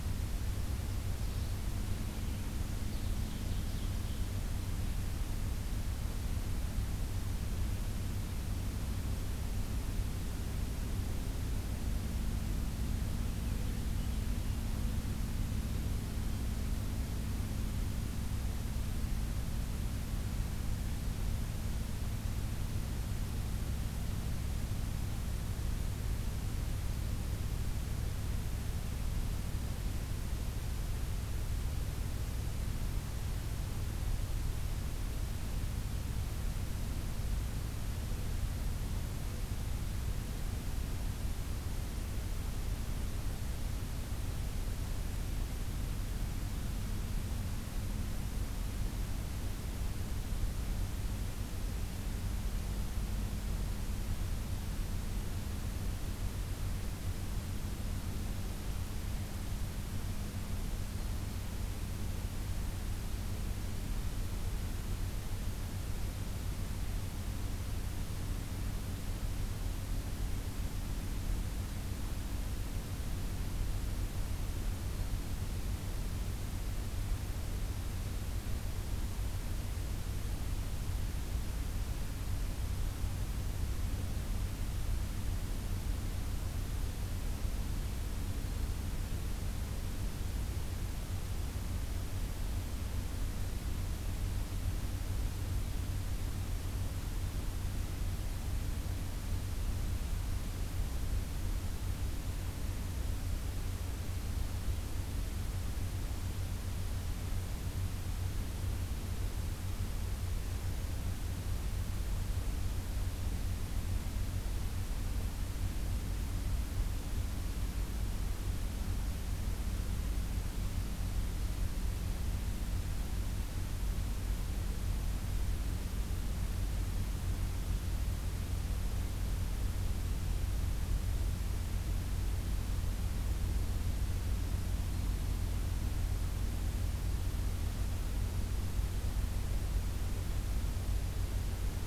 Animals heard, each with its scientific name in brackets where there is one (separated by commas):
Ovenbird (Seiurus aurocapilla)